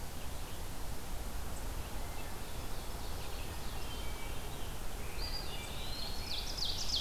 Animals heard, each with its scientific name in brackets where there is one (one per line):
Eastern Wood-Pewee (Contopus virens)
Red-eyed Vireo (Vireo olivaceus)
Ovenbird (Seiurus aurocapilla)
Scarlet Tanager (Piranga olivacea)